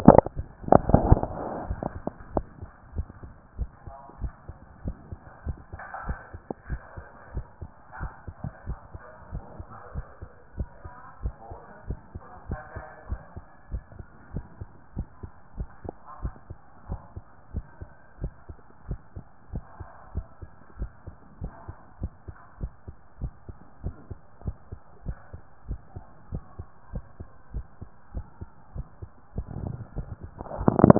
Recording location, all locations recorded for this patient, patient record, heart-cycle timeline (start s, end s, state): tricuspid valve (TV)
aortic valve (AV)+pulmonary valve (PV)+tricuspid valve (TV)+mitral valve (MV)
#Age: Child
#Sex: Male
#Height: 148.0 cm
#Weight: 54.7 kg
#Pregnancy status: False
#Murmur: Absent
#Murmur locations: nan
#Most audible location: nan
#Systolic murmur timing: nan
#Systolic murmur shape: nan
#Systolic murmur grading: nan
#Systolic murmur pitch: nan
#Systolic murmur quality: nan
#Diastolic murmur timing: nan
#Diastolic murmur shape: nan
#Diastolic murmur grading: nan
#Diastolic murmur pitch: nan
#Diastolic murmur quality: nan
#Outcome: Abnormal
#Campaign: 2014 screening campaign
0.00	2.62	unannotated
2.62	2.70	S2
2.70	2.94	diastole
2.94	3.10	S1
3.10	3.24	systole
3.24	3.34	S2
3.34	3.60	diastole
3.60	3.72	S1
3.72	3.86	systole
3.86	3.94	S2
3.94	4.20	diastole
4.20	4.34	S1
4.34	4.46	systole
4.46	4.56	S2
4.56	4.82	diastole
4.82	4.96	S1
4.96	5.08	systole
5.08	5.20	S2
5.20	5.44	diastole
5.44	5.58	S1
5.58	5.70	systole
5.70	5.80	S2
5.80	6.06	diastole
6.06	6.18	S1
6.18	6.34	systole
6.34	6.42	S2
6.42	6.68	diastole
6.68	6.80	S1
6.80	6.96	systole
6.96	7.06	S2
7.06	7.32	diastole
7.32	7.46	S1
7.46	7.62	systole
7.62	7.70	S2
7.70	8.00	diastole
8.00	8.12	S1
8.12	8.26	systole
8.26	8.36	S2
8.36	8.66	diastole
8.66	8.78	S1
8.78	8.92	systole
8.92	9.02	S2
9.02	9.30	diastole
9.30	9.44	S1
9.44	9.56	systole
9.56	9.66	S2
9.66	9.92	diastole
9.92	10.06	S1
10.06	10.22	systole
10.22	10.30	S2
10.30	10.56	diastole
10.56	10.70	S1
10.70	10.84	systole
10.84	10.92	S2
10.92	11.20	diastole
11.20	11.34	S1
11.34	11.50	systole
11.50	11.58	S2
11.58	11.86	diastole
11.86	12.00	S1
12.00	12.14	systole
12.14	12.22	S2
12.22	12.46	diastole
12.46	12.60	S1
12.60	12.74	systole
12.74	12.84	S2
12.84	13.08	diastole
13.08	13.22	S1
13.22	13.36	systole
13.36	13.44	S2
13.44	13.70	diastole
13.70	13.84	S1
13.84	13.98	systole
13.98	14.06	S2
14.06	14.32	diastole
14.32	14.46	S1
14.46	14.60	systole
14.60	14.68	S2
14.68	14.94	diastole
14.94	15.08	S1
15.08	15.22	systole
15.22	15.30	S2
15.30	15.56	diastole
15.56	15.68	S1
15.68	15.84	systole
15.84	15.94	S2
15.94	16.22	diastole
16.22	16.36	S1
16.36	16.50	systole
16.50	16.58	S2
16.58	16.88	diastole
16.88	17.00	S1
17.00	17.14	systole
17.14	17.24	S2
17.24	17.52	diastole
17.52	17.66	S1
17.66	17.80	systole
17.80	17.90	S2
17.90	18.20	diastole
18.20	18.32	S1
18.32	18.48	systole
18.48	18.58	S2
18.58	18.88	diastole
18.88	19.00	S1
19.00	19.16	systole
19.16	19.24	S2
19.24	19.52	diastole
19.52	19.64	S1
19.64	19.78	systole
19.78	19.88	S2
19.88	20.14	diastole
20.14	20.28	S1
20.28	20.42	systole
20.42	20.50	S2
20.50	20.78	diastole
20.78	20.92	S1
20.92	21.06	systole
21.06	21.16	S2
21.16	21.42	diastole
21.42	21.54	S1
21.54	21.68	systole
21.68	21.76	S2
21.76	22.02	diastole
22.02	22.12	S1
22.12	22.26	systole
22.26	22.36	S2
22.36	22.60	diastole
22.60	22.72	S1
22.72	22.88	systole
22.88	22.96	S2
22.96	23.22	diastole
23.22	23.34	S1
23.34	23.48	systole
23.48	23.58	S2
23.58	23.84	diastole
23.84	23.98	S1
23.98	24.10	systole
24.10	24.20	S2
24.20	24.44	diastole
24.44	24.56	S1
24.56	24.68	systole
24.68	24.78	S2
24.78	25.04	diastole
25.04	25.18	S1
25.18	25.32	systole
25.32	25.40	S2
25.40	25.68	diastole
25.68	25.80	S1
25.80	25.94	systole
25.94	26.04	S2
26.04	26.30	diastole
26.30	26.44	S1
26.44	26.58	systole
26.58	26.68	S2
26.68	26.92	diastole
26.92	27.06	S1
27.06	27.20	systole
27.20	27.28	S2
27.28	27.54	diastole
27.54	27.66	S1
27.66	27.80	systole
27.80	27.88	S2
27.88	28.14	diastole
28.14	28.26	S1
28.26	28.40	systole
28.40	28.48	S2
28.48	28.74	diastole
28.74	28.88	S1
28.88	29.02	systole
29.02	29.10	S2
29.10	29.18	diastole
29.18	30.99	unannotated